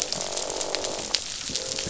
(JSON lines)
{"label": "biophony, croak", "recorder": "SoundTrap 500"}